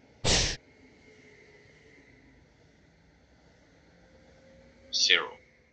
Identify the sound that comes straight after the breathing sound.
speech